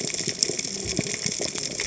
{"label": "biophony, cascading saw", "recorder": "HydroMoth"}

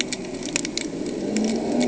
{"label": "anthrophony, boat engine", "recorder": "HydroMoth"}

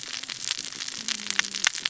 {"label": "biophony, cascading saw", "recorder": "SoundTrap 600 or HydroMoth"}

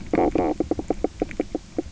{"label": "biophony, knock croak", "recorder": "SoundTrap 300"}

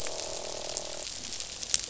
{"label": "biophony, croak", "recorder": "SoundTrap 500"}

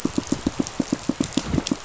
{"label": "biophony, pulse", "recorder": "SoundTrap 500"}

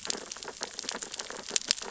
{"label": "biophony, sea urchins (Echinidae)", "recorder": "SoundTrap 600 or HydroMoth"}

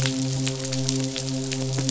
{"label": "biophony, midshipman", "recorder": "SoundTrap 500"}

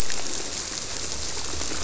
{"label": "biophony", "recorder": "SoundTrap 300"}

